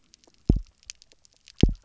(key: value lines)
label: biophony, double pulse
recorder: SoundTrap 300